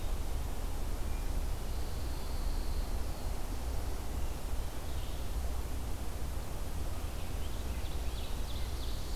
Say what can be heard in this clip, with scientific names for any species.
Vireo olivaceus, Setophaga pinus, Seiurus aurocapilla